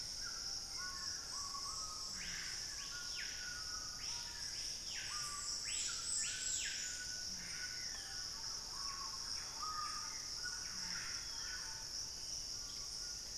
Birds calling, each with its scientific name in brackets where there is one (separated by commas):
Screaming Piha (Lipaugus vociferans), Black-spotted Bare-eye (Phlegopsis nigromaculata), unidentified bird, White-throated Toucan (Ramphastos tucanus), Ringed Antpipit (Corythopis torquatus)